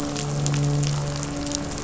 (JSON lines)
{"label": "anthrophony, boat engine", "recorder": "SoundTrap 500"}